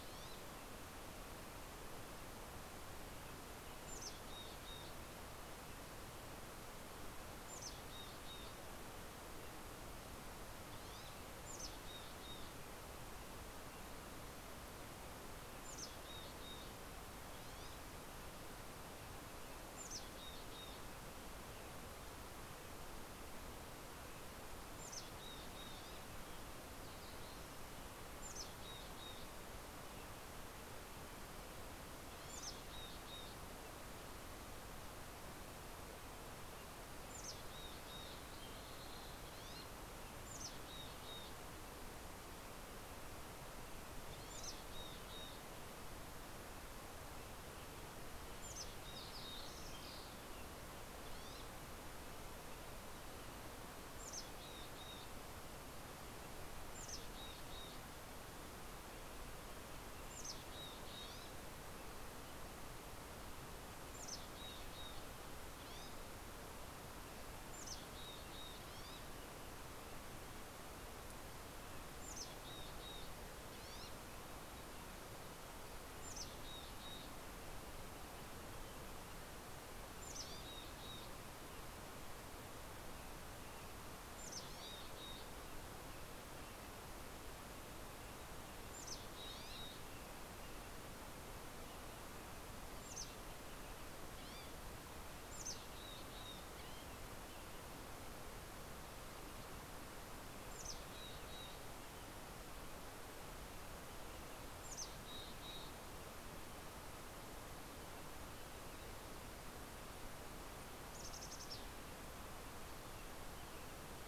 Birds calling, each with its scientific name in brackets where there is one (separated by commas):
Green-tailed Towhee (Pipilo chlorurus), Mountain Chickadee (Poecile gambeli), American Robin (Turdus migratorius), Townsend's Solitaire (Myadestes townsendi)